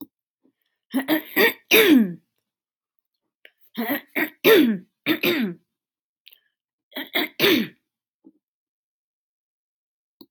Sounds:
Throat clearing